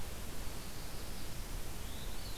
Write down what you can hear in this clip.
Black-throated Blue Warbler, Veery